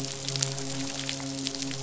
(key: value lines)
label: biophony, midshipman
recorder: SoundTrap 500